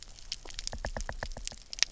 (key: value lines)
label: biophony, knock
recorder: SoundTrap 300